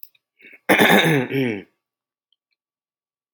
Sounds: Throat clearing